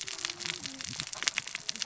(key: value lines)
label: biophony, cascading saw
recorder: SoundTrap 600 or HydroMoth